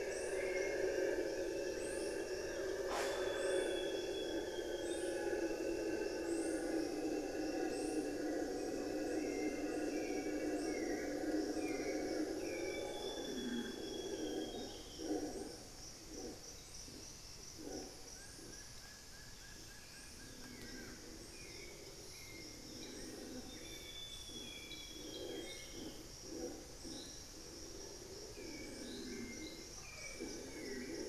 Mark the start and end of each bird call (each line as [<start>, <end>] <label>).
[0.00, 15.78] Hauxwell's Thrush (Turdus hauxwelli)
[0.08, 3.78] Long-winged Antwren (Myrmotherula longipennis)
[1.08, 4.38] Plain-winged Antshrike (Thamnophilus schistaceus)
[2.78, 5.38] Amazonian Grosbeak (Cyanoloxia rothschildii)
[12.28, 15.08] Amazonian Grosbeak (Cyanoloxia rothschildii)
[17.98, 21.18] Plain-winged Antshrike (Thamnophilus schistaceus)
[19.28, 23.18] Long-winged Antwren (Myrmotherula longipennis)
[19.48, 31.08] Hauxwell's Thrush (Turdus hauxwelli)
[23.18, 25.98] Amazonian Grosbeak (Cyanoloxia rothschildii)
[27.68, 29.68] unidentified bird